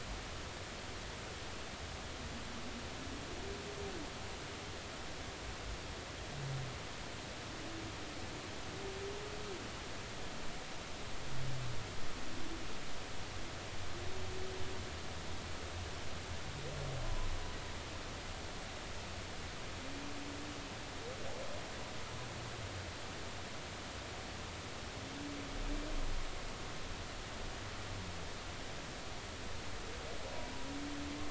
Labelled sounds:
17.0	17.3	humpback whale, 0.93 to 1.1 kHz

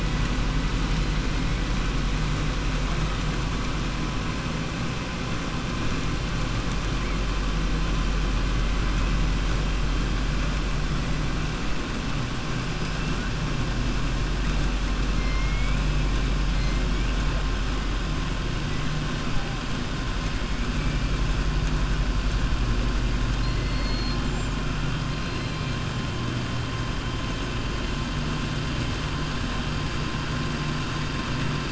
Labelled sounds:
15.1	15.8	killer whale, southern resident, 1.5 to 3.3 kHz
23.3	24.2	killer whale, southern resident, 3.5 to 4.4 kHz

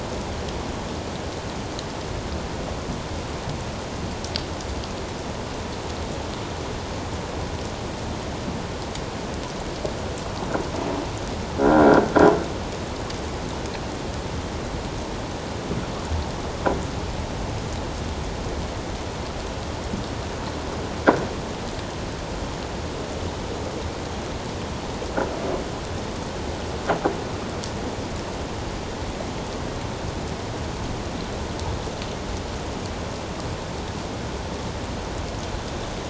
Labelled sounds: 11.6	12.1	croaking sound likely from a nearby submerged object, 1.3 to 1.7 kHz

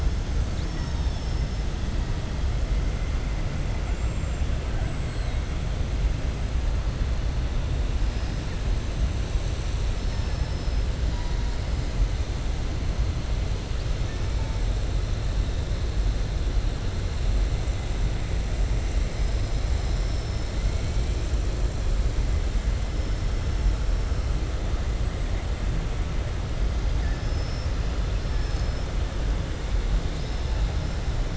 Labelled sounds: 3.8	4.4	killer whale, southern resident, 7.0 to 7.5 kHz
9.9	10.8	killer whale, southern resident, 4.4 to 5.6 kHz
19.7	20.5	killer whale, southern resident, 5.1 to 6.1 kHz
27.1	27.7	killer whale, southern resident, 4.8 to 6.1 kHz

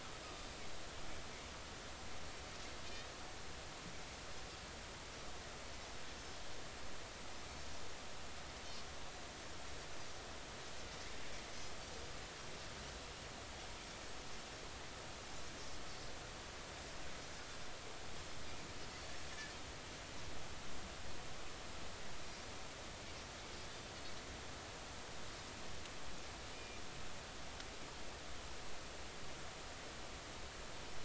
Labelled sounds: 0.2	0.5	Pacific white-sided dolphin, 4.8 to 5.1 kHz
26.5	26.8	Pacific white-sided dolphin, 2.3 to 2.5 kHz

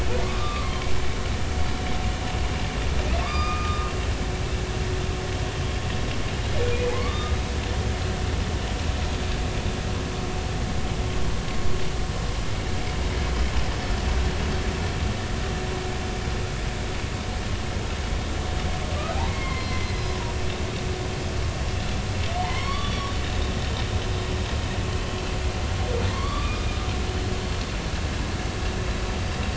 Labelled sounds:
0.3	0.9	humpback whale, 0.99 to 1.2 kHz
3.2	3.9	humpback whale, 1.1 to 4.9 kHz
6.9	7.4	humpback whale, 0.80 to 3.7 kHz
19.3	20.2	humpback whale, 0.99 to 4.3 kHz
22.4	23.1	humpback whale, 0.86 to 4.6 kHz
26.1	26.7	humpback whale, 0.99 to 1.3 kHz

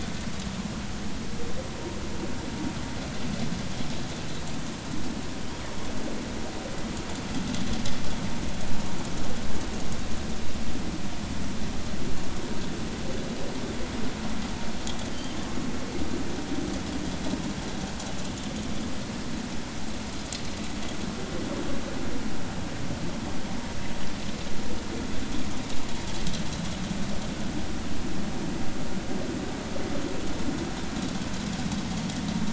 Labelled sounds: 15.1	15.4	killer whale, northern resident, G clan, call N23i, 3.0 to 3.3 kHz

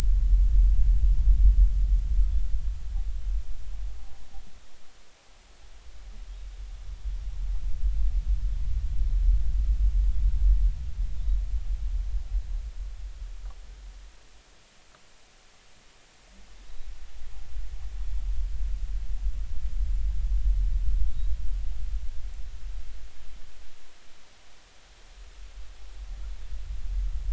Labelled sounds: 16.6	16.9	humpback whale, 3.7 to 3.9 kHz

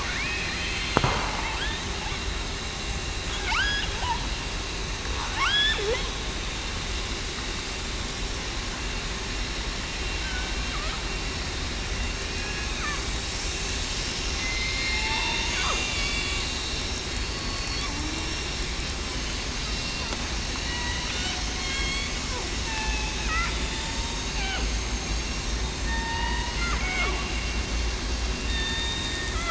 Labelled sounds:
0.4	1.1	killer whale, southern resident, 4.1 to 4.3 kHz
5.3	5.8	killer whale, southern resident, 0.82 to 1.8 kHz
14.4	16.0	killer whale, southern resident, 2.0 to 4.9 kHz
17.0	17.8	killer whale, southern resident, 4.3 to 4.5 kHz
20.6	21.0	killer whale, southern resident, 1.8 to 2.0 kHz
21.6	22.1	killer whale, southern resident, 2.1 to 4.6 kHz
22.6	23.1	killer whale, southern resident, 0.82 to 1.8 kHz
23.5	23.9	killer whale, southern resident, 3.5 to 3.8 kHz
25.8	27.2	killer whale, southern resident, 0.89 to 2.3 kHz
28.5	29.2	killer whale, southern resident, 1.8 to 3.7 kHz

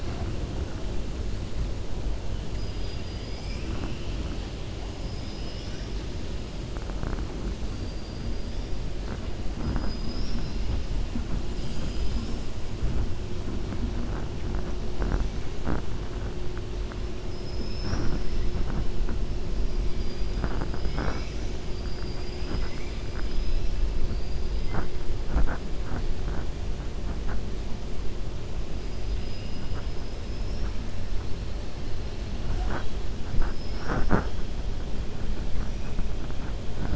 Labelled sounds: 17.2	18.2	killer whale, 4.2 to 6.0 kHz
29.1	29.6	killer whale, 2.5 to 3.6 kHz

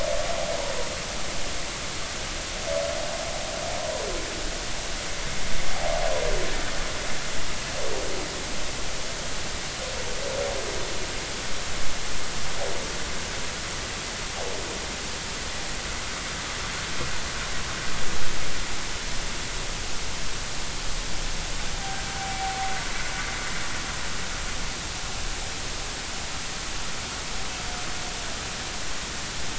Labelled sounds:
22.2	22.6	humpback whale, 0.80 to 0.83 kHz

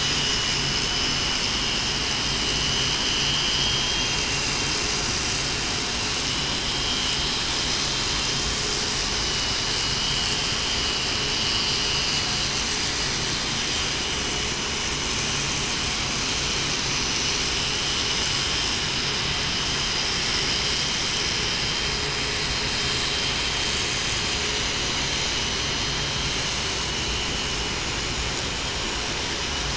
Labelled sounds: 0.8	1.1	vessel noise, 2.98 to 3.02 kHz
3.5	4.1	vessel noise, 3.21 to 3.23 kHz
6.7	7.0	vessel noise, 3.1 to 3.2 kHz

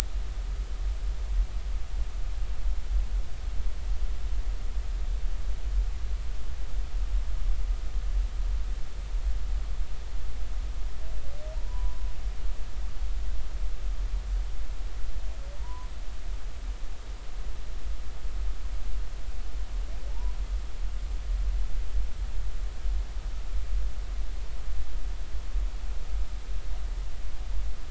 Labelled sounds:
11.6	12.0	humpback whale, 0.90 to 1.1 kHz
15.6	15.9	humpback whale, 0.90 to 1.1 kHz
20.1	20.3	humpback whale, 0.80 to 1.1 kHz

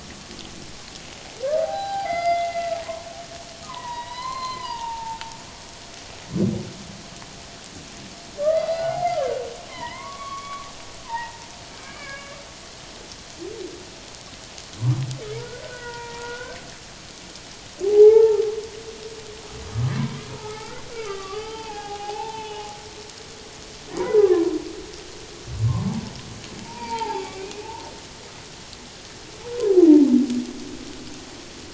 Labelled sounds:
1.6	3.1	humpback whale, 0.78 to 4.9 kHz
3.6	5.2	humpback whale, 0.84 to 4.3 kHz
8.4	10.7	humpback whale, 0.78 to 4.2 kHz
11.0	12.4	humpback whale, 0.84 to 2.4 kHz
15.4	16.6	humpback whale, 0.88 to 2.0 kHz
17.8	18.4	humpback whale, 0.78 to 1.4 kHz
20.3	22.7	humpback whale, 0.78 to 4.9 kHz
23.9	24.4	humpback whale, 0.91 to 1.3 kHz
25.7	26.0	humpback whale, 0.84 to 1.2 kHz
26.6	27.7	humpback whale, 0.78 to 4.9 kHz

